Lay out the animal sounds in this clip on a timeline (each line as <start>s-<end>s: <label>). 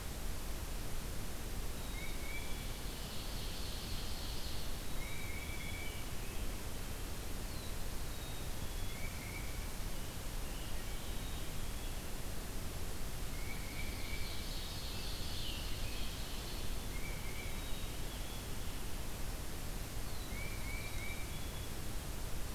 1.7s-2.8s: Tufted Titmouse (Baeolophus bicolor)
2.8s-4.8s: Ovenbird (Seiurus aurocapilla)
4.8s-6.0s: Black-capped Chickadee (Poecile atricapillus)
4.8s-6.1s: Tufted Titmouse (Baeolophus bicolor)
7.9s-9.1s: Black-capped Chickadee (Poecile atricapillus)
8.8s-9.7s: Tufted Titmouse (Baeolophus bicolor)
10.9s-12.1s: Black-capped Chickadee (Poecile atricapillus)
13.3s-14.6s: Tufted Titmouse (Baeolophus bicolor)
13.4s-16.8s: Ovenbird (Seiurus aurocapilla)
16.8s-17.7s: Tufted Titmouse (Baeolophus bicolor)
17.4s-18.6s: Black-capped Chickadee (Poecile atricapillus)
20.2s-21.4s: Tufted Titmouse (Baeolophus bicolor)
20.8s-21.8s: Black-capped Chickadee (Poecile atricapillus)